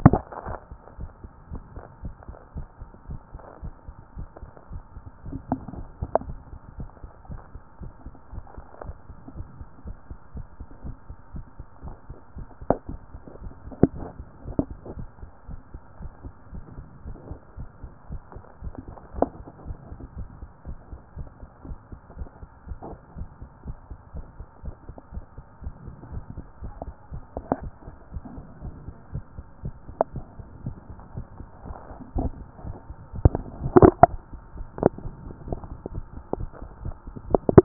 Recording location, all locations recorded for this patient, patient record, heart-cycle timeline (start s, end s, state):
tricuspid valve (TV)
pulmonary valve (PV)+tricuspid valve (TV)
#Age: Child
#Sex: Female
#Height: 151.0 cm
#Weight: 42.2 kg
#Pregnancy status: False
#Murmur: Absent
#Murmur locations: nan
#Most audible location: nan
#Systolic murmur timing: nan
#Systolic murmur shape: nan
#Systolic murmur grading: nan
#Systolic murmur pitch: nan
#Systolic murmur quality: nan
#Diastolic murmur timing: nan
#Diastolic murmur shape: nan
#Diastolic murmur grading: nan
#Diastolic murmur pitch: nan
#Diastolic murmur quality: nan
#Outcome: Normal
#Campaign: 2014 screening campaign
0.00	0.41	unannotated
0.41	0.47	diastole
0.47	0.58	S1
0.58	0.70	systole
0.70	0.78	S2
0.78	0.98	diastole
0.98	1.10	S1
1.10	1.22	systole
1.22	1.30	S2
1.30	1.50	diastole
1.50	1.62	S1
1.62	1.74	systole
1.74	1.84	S2
1.84	2.02	diastole
2.02	2.14	S1
2.14	2.28	systole
2.28	2.36	S2
2.36	2.54	diastole
2.54	2.66	S1
2.66	2.80	systole
2.80	2.88	S2
2.88	3.08	diastole
3.08	3.20	S1
3.20	3.32	systole
3.32	3.42	S2
3.42	3.62	diastole
3.62	3.74	S1
3.74	3.86	systole
3.86	3.94	S2
3.94	4.16	diastole
4.16	4.28	S1
4.28	4.42	systole
4.42	4.50	S2
4.50	4.72	diastole
4.72	4.82	S1
4.82	4.94	systole
4.94	5.04	S2
5.04	5.26	diastole
5.26	5.40	S1
5.40	5.50	systole
5.50	5.60	S2
5.60	5.77	diastole
5.77	5.89	S1
5.89	6.00	systole
6.00	6.10	S2
6.10	6.26	diastole
6.26	6.38	S1
6.38	6.52	systole
6.52	6.58	S2
6.58	6.78	diastole
6.78	6.90	S1
6.90	7.02	systole
7.02	7.10	S2
7.10	7.30	diastole
7.30	7.40	S1
7.40	7.54	systole
7.54	7.62	S2
7.62	7.80	diastole
7.80	7.92	S1
7.92	8.04	systole
8.04	8.14	S2
8.14	8.32	diastole
8.32	8.44	S1
8.44	8.56	systole
8.56	8.66	S2
8.66	8.84	diastole
8.84	8.96	S1
8.96	9.08	systole
9.08	9.16	S2
9.16	9.36	diastole
9.36	9.46	S1
9.46	9.58	systole
9.58	9.68	S2
9.68	9.86	diastole
9.86	9.96	S1
9.96	10.10	systole
10.10	10.18	S2
10.18	10.34	diastole
10.34	10.46	S1
10.46	10.58	systole
10.58	10.66	S2
10.66	10.84	diastole
10.84	10.96	S1
10.96	11.08	systole
11.08	11.16	S2
11.16	11.34	diastole
11.34	11.44	S1
11.44	11.58	systole
11.58	11.66	S2
11.66	11.84	diastole
11.84	11.96	S1
11.96	12.08	systole
12.08	12.18	S2
12.18	12.36	diastole
12.36	37.65	unannotated